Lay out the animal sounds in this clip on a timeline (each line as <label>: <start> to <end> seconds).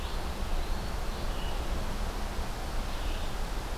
Red-eyed Vireo (Vireo olivaceus): 0.0 to 3.5 seconds
Eastern Wood-Pewee (Contopus virens): 0.4 to 1.1 seconds